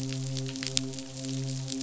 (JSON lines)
{"label": "biophony, midshipman", "recorder": "SoundTrap 500"}